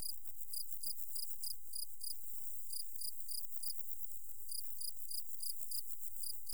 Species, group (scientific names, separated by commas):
Pseudochorthippus parallelus, Orthoptera